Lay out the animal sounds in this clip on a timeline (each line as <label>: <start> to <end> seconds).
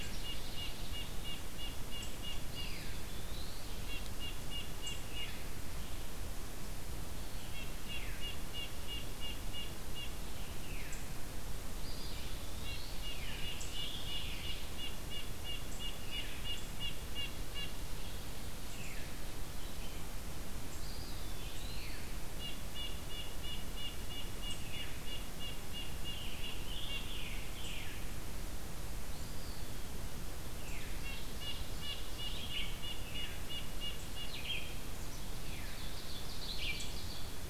Red-breasted Nuthatch (Sitta canadensis): 0.0 to 5.5 seconds
Eastern Wood-Pewee (Contopus virens): 2.4 to 3.9 seconds
Red-breasted Nuthatch (Sitta canadensis): 7.4 to 10.1 seconds
Veery (Catharus fuscescens): 7.8 to 8.2 seconds
Veery (Catharus fuscescens): 10.6 to 11.0 seconds
Eastern Wood-Pewee (Contopus virens): 11.7 to 13.0 seconds
Red-breasted Nuthatch (Sitta canadensis): 12.1 to 17.8 seconds
Scarlet Tanager (Piranga olivacea): 13.0 to 14.6 seconds
Veery (Catharus fuscescens): 13.1 to 13.5 seconds
Veery (Catharus fuscescens): 16.0 to 16.3 seconds
Veery (Catharus fuscescens): 18.7 to 19.0 seconds
Eastern Wood-Pewee (Contopus virens): 20.8 to 22.1 seconds
Veery (Catharus fuscescens): 21.8 to 22.2 seconds
Red-breasted Nuthatch (Sitta canadensis): 22.3 to 27.1 seconds
Veery (Catharus fuscescens): 24.5 to 24.9 seconds
Scarlet Tanager (Piranga olivacea): 26.0 to 28.0 seconds
Eastern Wood-Pewee (Contopus virens): 29.0 to 30.2 seconds
Veery (Catharus fuscescens): 30.6 to 30.9 seconds
Ovenbird (Seiurus aurocapilla): 30.7 to 32.4 seconds
Red-breasted Nuthatch (Sitta canadensis): 30.9 to 34.5 seconds
Red-eyed Vireo (Vireo olivaceus): 32.3 to 37.5 seconds
Veery (Catharus fuscescens): 35.4 to 35.7 seconds
Ovenbird (Seiurus aurocapilla): 35.5 to 37.3 seconds